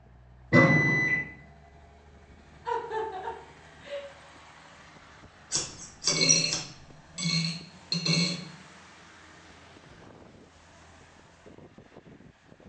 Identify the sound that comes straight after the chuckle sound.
scissors